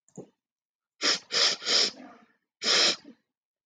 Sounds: Sniff